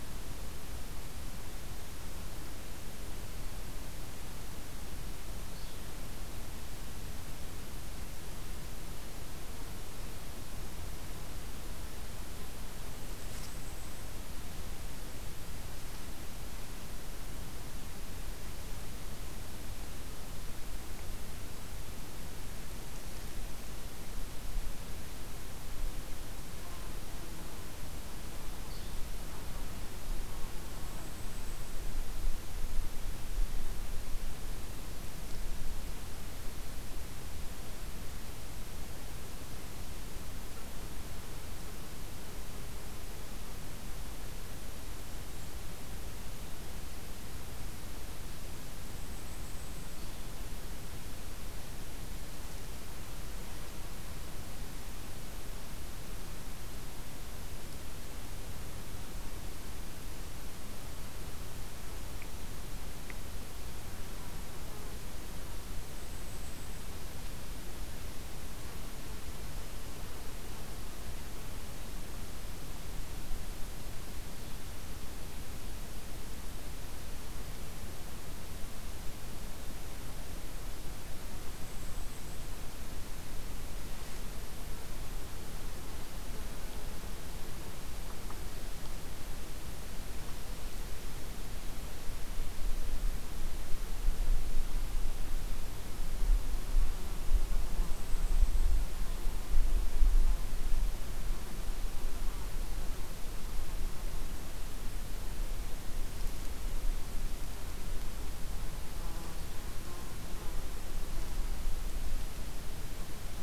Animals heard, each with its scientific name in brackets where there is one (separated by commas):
Red-eyed Vireo (Vireo olivaceus), Golden-crowned Kinglet (Regulus satrapa)